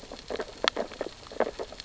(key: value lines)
label: biophony, sea urchins (Echinidae)
recorder: SoundTrap 600 or HydroMoth